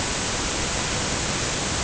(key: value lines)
label: ambient
recorder: HydroMoth